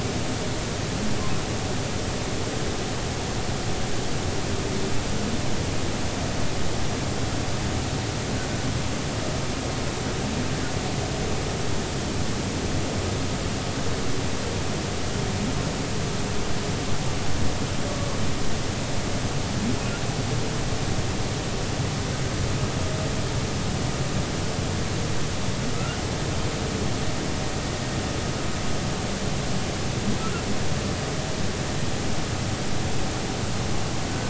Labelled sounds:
25.7	26.0	humpback whale, 1.2 to 1.5 kHz

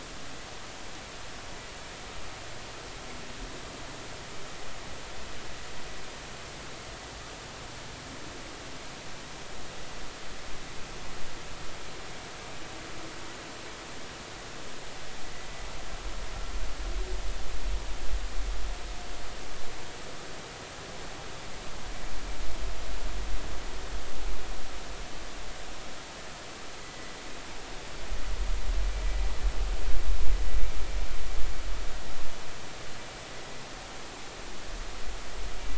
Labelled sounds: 26.8	27.1	vessel noise, 1.95 to 2.05 kHz

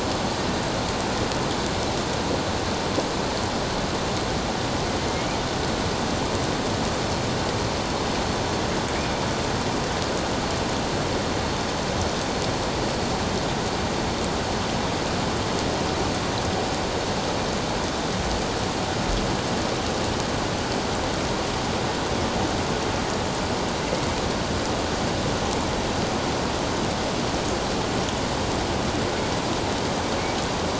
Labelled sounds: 9.0	9.2	killer whale, northern resident, A clan, 2.2 to 2.5 kHz

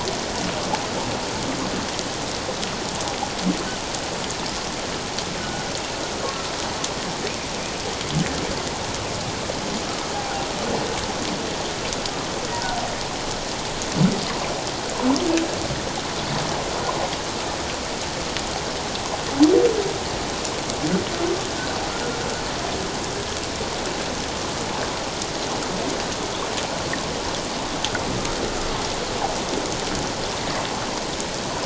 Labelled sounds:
5.4	5.7	humpback whale, 1.4 to 1.5 kHz
10.1	10.5	humpback whale, 0.78 to 0.88 kHz

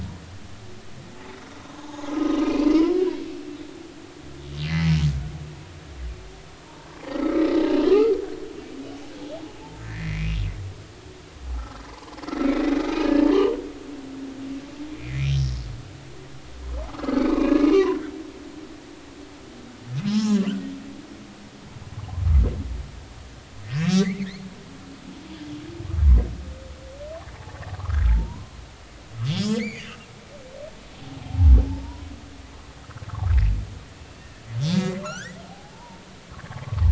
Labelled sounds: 1.6	2.7	humpback whale, 0.80 to 5.9 kHz
4.7	4.9	humpback whale, 1.9 to 2.1 kHz
6.7	7.7	humpback whale, 0.86 to 4.1 kHz
9.8	10.4	humpback whale, 1.7 to 2.6 kHz
11.5	12.2	humpback whale, 0.83 to 1.4 kHz
13.0	13.6	humpback whale, 1.6 to 3.3 kHz
14.9	15.6	humpback whale, 1.7 to 5.5 kHz
16.9	18.0	humpback whale, 0.93 to 2.9 kHz
20.0	20.4	humpback whale, 0.80 to 5.4 kHz
23.6	24.3	humpback whale, 1.0 to 2.7 kHz
27.3	28.5	humpback whale, 0.80 to 1.7 kHz
29.2	30.1	humpback whale, 1.7 to 6.8 kHz
31.3	32.1	humpback whale, 0.80 to 1.0 kHz
34.7	36.9	humpback whale, 0.80 to 3.7 kHz

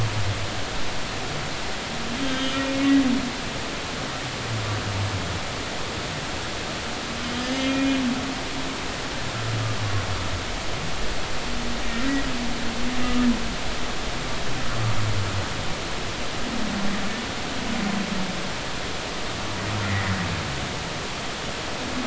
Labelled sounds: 2.2	2.6	humpback whale, 2.8 to 3.3 kHz
7.6	7.9	humpback whale, 2.3 to 2.5 kHz
19.9	20.1	humpback whale, 1.8 to 2.1 kHz

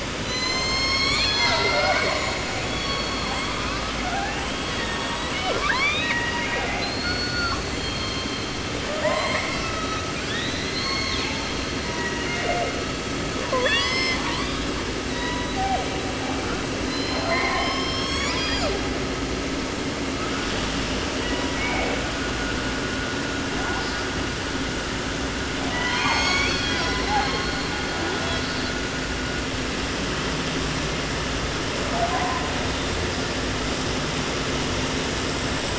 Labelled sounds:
0.0	2.6	killer whale, southern resident, J pod, call S01, 0.30 to 8.0 kHz
2.6	3.7	killer whale, 0.30 to 6.5 kHz
3.3	6.9	killer whale, southern resident, 0.30 to 8.0 kHz
4.7	5.6	killer whale, southern resident, J pod, call S01, 0.20 to 7.2 kHz
6.0	6.9	killer whale, southern resident, J pod, call S01, 0.45 to 6.8 kHz
6.8	7.9	killer whale, southern resident, J pod, call S42, 0.30 to 8.0 kHz
8.8	10.1	killer whale, southern resident, 0.30 to 8.0 kHz
10.1	11.5	killer whale, 0.59 to 7.6 kHz
11.8	12.9	killer whale, 0.35 to 3.2 kHz
13.4	14.7	killer whale, southern resident, 0.30 to 8.0 kHz
15.0	15.9	killer whale, southern resident, J pod, call S01, 0.30 to 5.4 kHz
16.7	19.0	killer whale, 0.26 to 8.0 kHz
21.2	22.0	killer whale, 0.42 to 4.0 kHz
23.5	24.1	killer whale, 0.30 to 5.9 kHz
25.7	28.8	killer whale, southern resident, J pod, call S01, 0.30 to 7.2 kHz
31.8	32.6	killer whale, 0.37 to 1.7 kHz

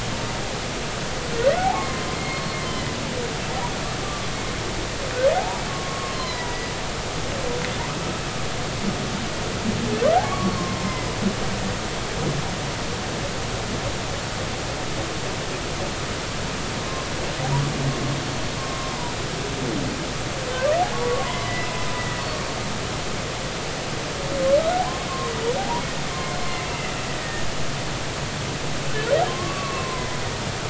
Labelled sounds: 1.6	2.6	humpback whale, 0.80 to 4.4 kHz
5.0	6.6	humpback whale, 0.80 to 4.3 kHz
10.2	10.8	humpback whale, 0.99 to 1.2 kHz
18.6	18.9	humpback whale, 1.0 to 1.1 kHz
20.9	21.7	humpback whale, 0.93 to 2.1 kHz
25.1	25.8	humpback whale, 0.80 to 1.2 kHz
26.6	27.5	humpback whale, 1.7 to 2.9 kHz
29.3	30.1	humpback whale, 0.96 to 1.2 kHz

